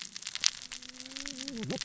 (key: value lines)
label: biophony, cascading saw
recorder: SoundTrap 600 or HydroMoth